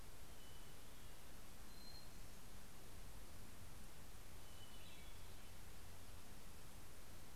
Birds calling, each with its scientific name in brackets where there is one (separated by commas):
Hermit Thrush (Catharus guttatus)